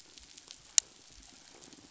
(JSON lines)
{"label": "biophony", "recorder": "SoundTrap 500"}